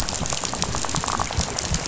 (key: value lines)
label: biophony, rattle
recorder: SoundTrap 500